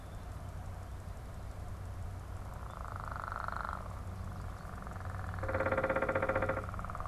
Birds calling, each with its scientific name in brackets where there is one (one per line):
unidentified bird